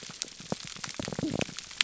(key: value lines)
label: biophony, pulse
recorder: SoundTrap 300